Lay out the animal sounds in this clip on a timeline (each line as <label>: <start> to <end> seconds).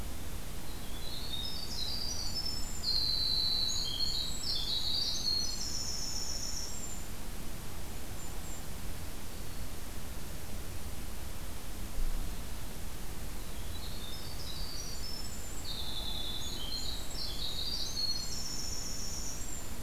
Winter Wren (Troglodytes hiemalis): 0.7 to 7.0 seconds
Golden-crowned Kinglet (Regulus satrapa): 7.7 to 8.7 seconds
Winter Wren (Troglodytes hiemalis): 13.4 to 19.8 seconds